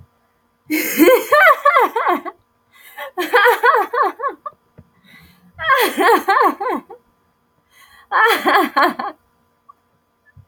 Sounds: Laughter